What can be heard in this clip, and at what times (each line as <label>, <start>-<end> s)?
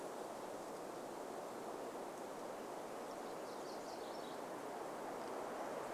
MacGillivray's Warbler song, 2-6 s